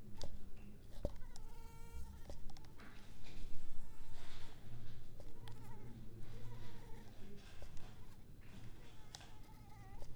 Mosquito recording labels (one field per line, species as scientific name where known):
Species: Culex pipiens complex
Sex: female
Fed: unfed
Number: one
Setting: cup